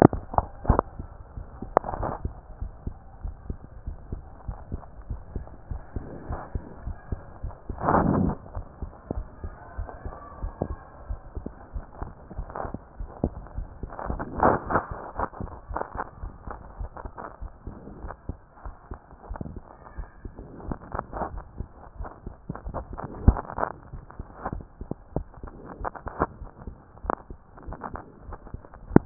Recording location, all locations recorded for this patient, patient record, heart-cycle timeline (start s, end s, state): aortic valve (AV)
aortic valve (AV)+pulmonary valve (PV)+tricuspid valve (TV)+mitral valve (MV)
#Age: Child
#Sex: Female
#Height: 165.0 cm
#Weight: 46.6 kg
#Pregnancy status: False
#Murmur: Absent
#Murmur locations: nan
#Most audible location: nan
#Systolic murmur timing: nan
#Systolic murmur shape: nan
#Systolic murmur grading: nan
#Systolic murmur pitch: nan
#Systolic murmur quality: nan
#Diastolic murmur timing: nan
#Diastolic murmur shape: nan
#Diastolic murmur grading: nan
#Diastolic murmur pitch: nan
#Diastolic murmur quality: nan
#Outcome: Normal
#Campaign: 2014 screening campaign
0.00	2.36	unannotated
2.36	2.58	diastole
2.58	2.72	S1
2.72	2.84	systole
2.84	2.98	S2
2.98	3.22	diastole
3.22	3.34	S1
3.34	3.44	systole
3.44	3.60	S2
3.60	3.84	diastole
3.84	3.98	S1
3.98	4.10	systole
4.10	4.24	S2
4.24	4.46	diastole
4.46	4.60	S1
4.60	4.70	systole
4.70	4.80	S2
4.80	5.08	diastole
5.08	5.22	S1
5.22	5.32	systole
5.32	5.46	S2
5.46	5.68	diastole
5.68	5.82	S1
5.82	5.94	systole
5.94	6.04	S2
6.04	6.28	diastole
6.28	6.40	S1
6.40	6.48	systole
6.48	6.62	S2
6.62	6.84	diastole
6.84	6.98	S1
6.98	7.08	systole
7.08	7.20	S2
7.20	7.42	diastole
7.42	7.54	S1
7.54	7.66	systole
7.66	7.76	S2
7.76	7.91	diastole
7.91	8.00	S1
8.00	8.11	systole
8.11	8.23	S2
8.23	8.56	diastole
8.56	8.68	S1
8.68	8.80	systole
8.80	8.94	S2
8.94	9.16	diastole
9.16	9.28	S1
9.28	9.42	systole
9.42	9.54	S2
9.54	9.76	diastole
9.76	9.90	S1
9.90	10.02	systole
10.02	10.12	S2
10.12	10.40	diastole
10.40	10.54	S1
10.54	10.60	systole
10.60	10.76	S2
10.76	11.04	diastole
11.04	11.20	S1
11.20	11.34	systole
11.34	11.46	S2
11.46	11.74	diastole
11.74	11.88	S1
11.88	12.00	systole
12.00	12.12	S2
12.12	12.36	diastole
12.36	12.50	S1
12.50	12.62	systole
12.62	12.72	S2
12.72	12.98	diastole
12.98	13.12	S1
13.12	13.22	systole
13.22	13.34	S2
13.34	13.56	diastole
13.56	13.70	S1
13.70	13.80	systole
13.80	13.90	S2
13.90	14.14	diastole
14.14	14.28	S1
14.28	14.44	systole
14.44	29.06	unannotated